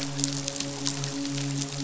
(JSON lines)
{"label": "biophony, midshipman", "recorder": "SoundTrap 500"}